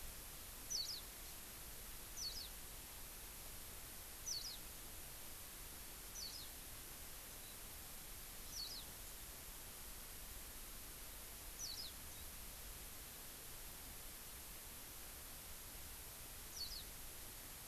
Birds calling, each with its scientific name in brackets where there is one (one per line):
Warbling White-eye (Zosterops japonicus)